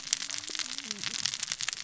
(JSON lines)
{"label": "biophony, cascading saw", "recorder": "SoundTrap 600 or HydroMoth"}